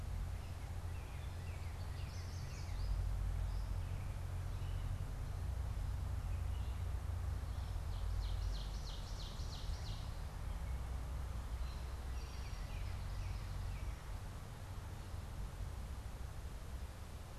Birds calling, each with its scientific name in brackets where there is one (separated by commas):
Eastern Towhee (Pipilo erythrophthalmus), Northern Cardinal (Cardinalis cardinalis), Yellow Warbler (Setophaga petechia), Ovenbird (Seiurus aurocapilla)